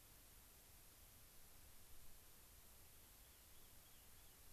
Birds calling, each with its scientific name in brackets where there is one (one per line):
Rock Wren (Salpinctes obsoletus)